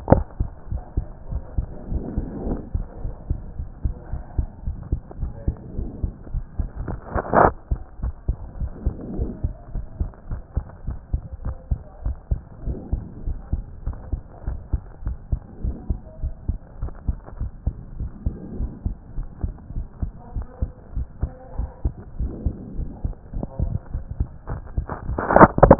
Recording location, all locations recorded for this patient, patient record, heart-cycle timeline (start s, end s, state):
pulmonary valve (PV)
aortic valve (AV)+pulmonary valve (PV)+tricuspid valve (TV)+mitral valve (MV)
#Age: Child
#Sex: Male
#Height: 131.0 cm
#Weight: 24.8 kg
#Pregnancy status: False
#Murmur: Absent
#Murmur locations: nan
#Most audible location: nan
#Systolic murmur timing: nan
#Systolic murmur shape: nan
#Systolic murmur grading: nan
#Systolic murmur pitch: nan
#Systolic murmur quality: nan
#Diastolic murmur timing: nan
#Diastolic murmur shape: nan
#Diastolic murmur grading: nan
#Diastolic murmur pitch: nan
#Diastolic murmur quality: nan
#Outcome: Normal
#Campaign: 2014 screening campaign
0.00	7.86	unannotated
7.86	8.02	diastole
8.02	8.14	S1
8.14	8.28	systole
8.28	8.36	S2
8.36	8.60	diastole
8.60	8.72	S1
8.72	8.84	systole
8.84	8.94	S2
8.94	9.16	diastole
9.16	9.30	S1
9.30	9.42	systole
9.42	9.54	S2
9.54	9.74	diastole
9.74	9.86	S1
9.86	10.00	systole
10.00	10.10	S2
10.10	10.30	diastole
10.30	10.42	S1
10.42	10.56	systole
10.56	10.64	S2
10.64	10.86	diastole
10.86	10.98	S1
10.98	11.12	systole
11.12	11.22	S2
11.22	11.44	diastole
11.44	11.56	S1
11.56	11.70	systole
11.70	11.80	S2
11.80	12.04	diastole
12.04	12.16	S1
12.16	12.30	systole
12.30	12.40	S2
12.40	12.66	diastole
12.66	12.78	S1
12.78	12.92	systole
12.92	13.02	S2
13.02	13.26	diastole
13.26	13.38	S1
13.38	13.52	systole
13.52	13.64	S2
13.64	13.86	diastole
13.86	13.98	S1
13.98	14.12	systole
14.12	14.20	S2
14.20	14.46	diastole
14.46	14.58	S1
14.58	14.72	systole
14.72	14.82	S2
14.82	15.06	diastole
15.06	15.16	S1
15.16	15.30	systole
15.30	15.40	S2
15.40	15.64	diastole
15.64	15.76	S1
15.76	15.88	systole
15.88	15.98	S2
15.98	16.22	diastole
16.22	16.34	S1
16.34	16.48	systole
16.48	16.58	S2
16.58	16.82	diastole
16.82	16.92	S1
16.92	17.06	systole
17.06	17.16	S2
17.16	17.40	diastole
17.40	17.50	S1
17.50	17.66	systole
17.66	17.74	S2
17.74	18.00	diastole
18.00	18.10	S1
18.10	18.24	systole
18.24	18.34	S2
18.34	18.58	diastole
18.58	18.70	S1
18.70	18.84	systole
18.84	18.96	S2
18.96	19.16	diastole
19.16	19.28	S1
19.28	19.42	systole
19.42	19.54	S2
19.54	19.76	diastole
19.76	19.86	S1
19.86	20.02	systole
20.02	20.12	S2
20.12	20.34	diastole
20.34	20.46	S1
20.46	20.60	systole
20.60	20.70	S2
20.70	20.96	diastole
20.96	21.06	S1
21.06	21.22	systole
21.22	21.30	S2
21.30	21.58	diastole
21.58	21.70	S1
21.70	21.84	systole
21.84	21.94	S2
21.94	22.20	diastole
22.20	22.32	S1
22.32	22.44	systole
22.44	22.54	S2
22.54	22.78	diastole
22.78	25.79	unannotated